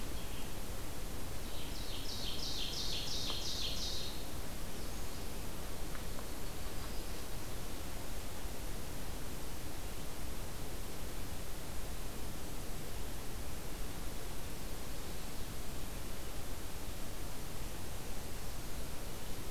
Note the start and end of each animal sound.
[1.39, 4.28] Ovenbird (Seiurus aurocapilla)
[5.85, 7.45] Black-throated Green Warbler (Setophaga virens)

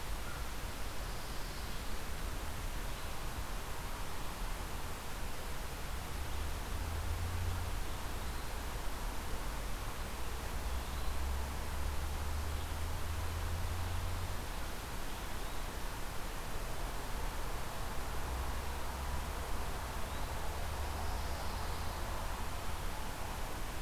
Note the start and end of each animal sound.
[1.01, 1.96] Pine Warbler (Setophaga pinus)
[20.83, 22.01] Pine Warbler (Setophaga pinus)

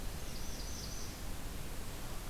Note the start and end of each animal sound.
[0.00, 1.46] Northern Parula (Setophaga americana)

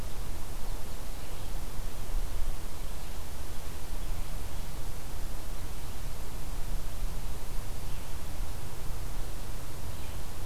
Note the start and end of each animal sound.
[7.76, 10.46] Red-eyed Vireo (Vireo olivaceus)

